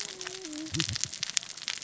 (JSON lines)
{"label": "biophony, cascading saw", "recorder": "SoundTrap 600 or HydroMoth"}